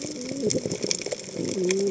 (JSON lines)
{"label": "biophony, cascading saw", "recorder": "HydroMoth"}